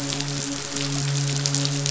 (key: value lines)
label: biophony, midshipman
recorder: SoundTrap 500